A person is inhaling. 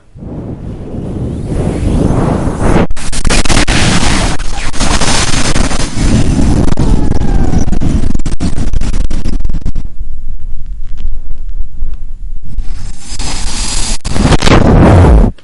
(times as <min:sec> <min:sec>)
0:12.5 0:13.1